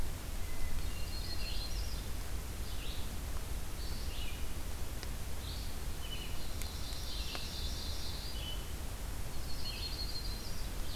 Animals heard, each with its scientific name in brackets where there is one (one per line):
Red-eyed Vireo (Vireo olivaceus)
Yellow-rumped Warbler (Setophaga coronata)
Hermit Thrush (Catharus guttatus)
Ovenbird (Seiurus aurocapilla)